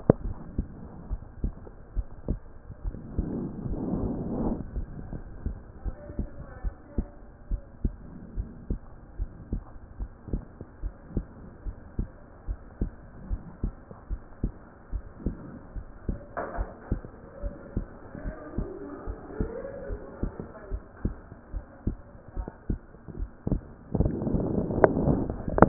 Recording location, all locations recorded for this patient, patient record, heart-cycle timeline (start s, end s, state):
pulmonary valve (PV)
aortic valve (AV)+pulmonary valve (PV)+tricuspid valve (TV)+mitral valve (MV)
#Age: Child
#Sex: Female
#Height: 134.0 cm
#Weight: 29.4 kg
#Pregnancy status: False
#Murmur: Absent
#Murmur locations: nan
#Most audible location: nan
#Systolic murmur timing: nan
#Systolic murmur shape: nan
#Systolic murmur grading: nan
#Systolic murmur pitch: nan
#Systolic murmur quality: nan
#Diastolic murmur timing: nan
#Diastolic murmur shape: nan
#Diastolic murmur grading: nan
#Diastolic murmur pitch: nan
#Diastolic murmur quality: nan
#Outcome: Normal
#Campaign: 2014 screening campaign
0.00	0.24	unannotated
0.24	0.36	S1
0.36	0.56	systole
0.56	0.66	S2
0.66	1.10	diastole
1.10	1.20	S1
1.20	1.42	systole
1.42	1.52	S2
1.52	1.96	diastole
1.96	2.06	S1
2.06	2.28	systole
2.28	2.40	S2
2.40	2.84	diastole
2.84	2.96	S1
2.96	3.16	systole
3.16	3.28	S2
3.28	3.66	diastole
3.66	3.80	S1
3.80	4.01	systole
4.01	4.10	S2
4.10	4.43	diastole
4.43	4.58	S1
4.58	4.76	systole
4.76	4.86	S2
4.86	5.12	diastole
5.12	5.24	S1
5.24	5.44	systole
5.44	5.54	S2
5.54	5.84	diastole
5.84	5.96	S1
5.96	6.18	systole
6.18	6.26	S2
6.26	6.64	diastole
6.64	6.74	S1
6.74	6.96	systole
6.96	7.06	S2
7.06	7.50	diastole
7.50	7.62	S1
7.62	7.82	systole
7.82	7.94	S2
7.94	8.36	diastole
8.36	8.48	S1
8.48	8.68	systole
8.68	8.80	S2
8.80	9.18	diastole
9.18	9.30	S1
9.30	9.52	systole
9.52	9.62	S2
9.62	10.00	diastole
10.00	10.10	S1
10.10	10.32	systole
10.32	10.42	S2
10.42	10.82	diastole
10.82	10.94	S1
10.94	11.14	systole
11.14	11.26	S2
11.26	11.66	diastole
11.66	11.76	S1
11.76	11.98	systole
11.98	12.08	S2
12.08	12.48	diastole
12.48	12.58	S1
12.58	12.80	systole
12.80	12.92	S2
12.92	13.30	diastole
13.30	13.40	S1
13.40	13.62	systole
13.62	13.74	S2
13.74	14.10	diastole
14.10	14.20	S1
14.20	14.42	systole
14.42	14.52	S2
14.52	14.92	diastole
14.92	15.04	S1
15.04	15.24	systole
15.24	15.36	S2
15.36	15.76	diastole
15.76	15.86	S1
15.86	16.08	systole
16.08	16.18	S2
16.18	16.56	diastole
16.56	16.68	S1
16.68	16.90	systole
16.90	17.02	S2
17.02	17.42	diastole
17.42	17.54	S1
17.54	17.76	systole
17.76	17.86	S2
17.86	18.24	diastole
18.24	18.36	S1
18.36	18.56	systole
18.56	18.68	S2
18.68	19.06	diastole
19.06	19.18	S1
19.18	19.38	systole
19.38	19.50	S2
19.50	19.90	diastole
19.90	20.00	S1
20.00	20.22	systole
20.22	20.32	S2
20.32	20.72	diastole
20.72	20.82	S1
20.82	21.04	systole
21.04	21.14	S2
21.14	21.54	diastole
21.54	21.64	S1
21.64	21.86	systole
21.86	21.98	S2
21.98	22.36	diastole
22.36	22.48	S1
22.48	22.68	systole
22.68	22.80	S2
22.80	23.18	diastole
23.18	25.68	unannotated